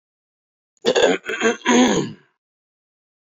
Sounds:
Throat clearing